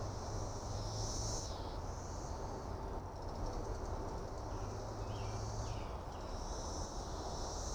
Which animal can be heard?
Magicicada cassini, a cicada